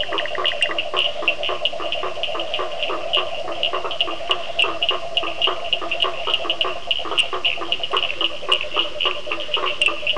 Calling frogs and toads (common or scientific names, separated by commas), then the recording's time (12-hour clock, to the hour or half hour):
Bischoff's tree frog, blacksmith tree frog, Cochran's lime tree frog
~7pm